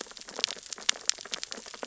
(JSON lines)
{"label": "biophony, sea urchins (Echinidae)", "recorder": "SoundTrap 600 or HydroMoth"}